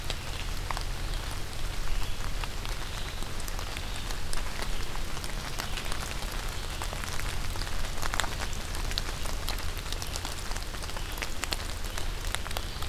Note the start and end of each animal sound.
0.0s-12.9s: Red-eyed Vireo (Vireo olivaceus)

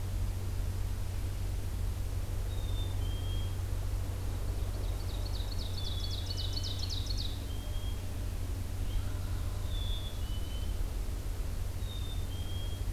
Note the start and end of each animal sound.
2.4s-3.6s: Black-capped Chickadee (Poecile atricapillus)
4.5s-7.5s: Ovenbird (Seiurus aurocapilla)
5.7s-8.0s: Black-capped Chickadee (Poecile atricapillus)
8.8s-9.2s: Red-eyed Vireo (Vireo olivaceus)
8.9s-9.9s: Wild Turkey (Meleagris gallopavo)
9.6s-10.8s: Black-capped Chickadee (Poecile atricapillus)
11.8s-12.9s: Black-capped Chickadee (Poecile atricapillus)

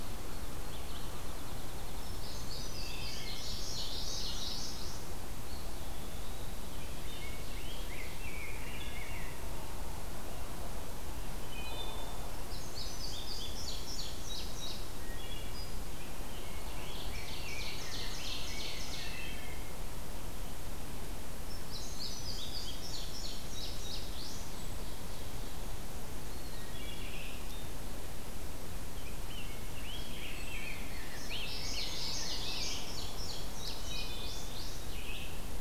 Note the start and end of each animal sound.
0.0s-2.3s: Field Sparrow (Spizella pusilla)
2.1s-5.1s: Indigo Bunting (Passerina cyanea)
2.7s-3.6s: Wood Thrush (Hylocichla mustelina)
3.3s-4.8s: Common Yellowthroat (Geothlypis trichas)
5.2s-6.7s: Eastern Wood-Pewee (Contopus virens)
6.7s-8.3s: Ovenbird (Seiurus aurocapilla)
6.7s-9.4s: Rose-breasted Grosbeak (Pheucticus ludovicianus)
8.5s-9.3s: Wood Thrush (Hylocichla mustelina)
11.4s-12.2s: Wood Thrush (Hylocichla mustelina)
12.3s-14.8s: Indigo Bunting (Passerina cyanea)
15.0s-15.9s: Wood Thrush (Hylocichla mustelina)
16.2s-18.7s: Rose-breasted Grosbeak (Pheucticus ludovicianus)
16.4s-19.2s: Ovenbird (Seiurus aurocapilla)
19.0s-19.7s: Wood Thrush (Hylocichla mustelina)
21.4s-24.5s: Indigo Bunting (Passerina cyanea)
24.4s-25.7s: Ovenbird (Seiurus aurocapilla)
26.1s-26.7s: Eastern Wood-Pewee (Contopus virens)
26.5s-27.1s: Wood Thrush (Hylocichla mustelina)
27.0s-27.5s: Red-eyed Vireo (Vireo olivaceus)
28.7s-32.8s: Rose-breasted Grosbeak (Pheucticus ludovicianus)
31.3s-32.7s: Common Yellowthroat (Geothlypis trichas)
31.4s-34.9s: Indigo Bunting (Passerina cyanea)
33.7s-34.4s: Wood Thrush (Hylocichla mustelina)
34.7s-35.6s: Red-eyed Vireo (Vireo olivaceus)

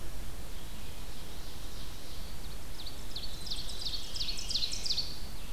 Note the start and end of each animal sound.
0.0s-5.3s: Ovenbird (Seiurus aurocapilla)
3.5s-5.0s: Veery (Catharus fuscescens)

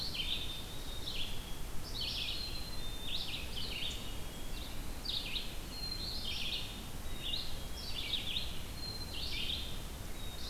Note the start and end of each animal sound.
0.0s-1.7s: Black-capped Chickadee (Poecile atricapillus)
0.0s-10.5s: Red-eyed Vireo (Vireo olivaceus)
2.3s-3.3s: Black-capped Chickadee (Poecile atricapillus)
3.6s-4.7s: Black-capped Chickadee (Poecile atricapillus)
5.5s-8.0s: Black-capped Chickadee (Poecile atricapillus)
8.6s-9.8s: Black-capped Chickadee (Poecile atricapillus)

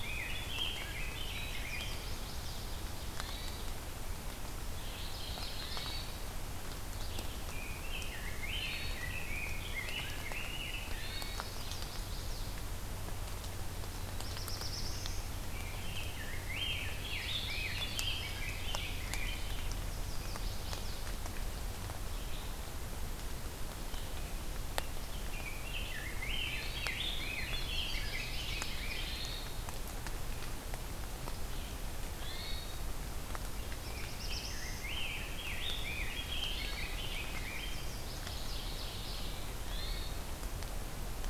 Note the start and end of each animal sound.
0.0s-2.0s: Rose-breasted Grosbeak (Pheucticus ludovicianus)
1.3s-2.7s: Chestnut-sided Warbler (Setophaga pensylvanica)
3.0s-3.7s: Hermit Thrush (Catharus guttatus)
4.9s-6.1s: Mourning Warbler (Geothlypis philadelphia)
5.5s-6.3s: Hermit Thrush (Catharus guttatus)
7.3s-11.0s: Rose-breasted Grosbeak (Pheucticus ludovicianus)
8.5s-9.0s: Hermit Thrush (Catharus guttatus)
10.8s-11.6s: Hermit Thrush (Catharus guttatus)
11.6s-12.7s: Chestnut-sided Warbler (Setophaga pensylvanica)
14.1s-15.3s: Black-throated Blue Warbler (Setophaga caerulescens)
15.4s-19.7s: Rose-breasted Grosbeak (Pheucticus ludovicianus)
17.4s-18.8s: Yellow-rumped Warbler (Setophaga coronata)
19.8s-21.1s: Chestnut-sided Warbler (Setophaga pensylvanica)
24.8s-29.3s: Rose-breasted Grosbeak (Pheucticus ludovicianus)
26.4s-27.1s: Hermit Thrush (Catharus guttatus)
26.9s-28.3s: Yellow-rumped Warbler (Setophaga coronata)
27.5s-28.7s: Chestnut-sided Warbler (Setophaga pensylvanica)
28.9s-29.7s: Hermit Thrush (Catharus guttatus)
32.1s-32.9s: Hermit Thrush (Catharus guttatus)
33.6s-34.9s: Black-throated Blue Warbler (Setophaga caerulescens)
33.9s-38.0s: Rose-breasted Grosbeak (Pheucticus ludovicianus)
36.4s-36.9s: Hermit Thrush (Catharus guttatus)
37.3s-38.7s: Chestnut-sided Warbler (Setophaga pensylvanica)
38.1s-39.5s: Mourning Warbler (Geothlypis philadelphia)
39.5s-40.3s: Hermit Thrush (Catharus guttatus)

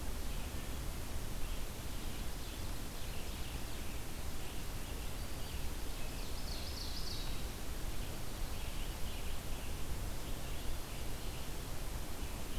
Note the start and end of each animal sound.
0.0s-12.6s: Red-eyed Vireo (Vireo olivaceus)
1.5s-3.8s: Ovenbird (Seiurus aurocapilla)
5.8s-7.5s: Ovenbird (Seiurus aurocapilla)

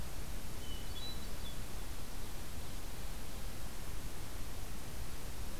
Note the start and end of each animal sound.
0.5s-1.7s: Hermit Thrush (Catharus guttatus)

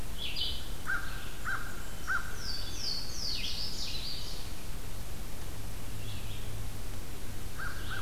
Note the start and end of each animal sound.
0.0s-8.0s: Red-eyed Vireo (Vireo olivaceus)
0.8s-2.6s: American Crow (Corvus brachyrhynchos)
1.1s-2.4s: Blackburnian Warbler (Setophaga fusca)
1.6s-2.4s: Hermit Thrush (Catharus guttatus)
2.1s-4.6s: Louisiana Waterthrush (Parkesia motacilla)
7.3s-8.0s: American Crow (Corvus brachyrhynchos)

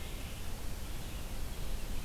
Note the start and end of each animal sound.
0.0s-2.0s: Red-eyed Vireo (Vireo olivaceus)

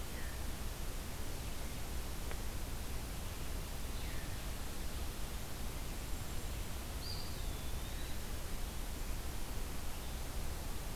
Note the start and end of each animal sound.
0.0s-0.4s: Veery (Catharus fuscescens)
6.5s-8.7s: Eastern Wood-Pewee (Contopus virens)

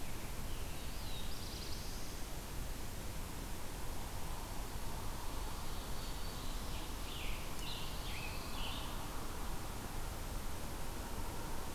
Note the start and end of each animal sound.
0.7s-2.2s: Black-throated Blue Warbler (Setophaga caerulescens)
5.0s-6.9s: Black-throated Green Warbler (Setophaga virens)
5.3s-7.0s: Ovenbird (Seiurus aurocapilla)
7.0s-8.9s: Scarlet Tanager (Piranga olivacea)
7.7s-8.9s: Pine Warbler (Setophaga pinus)

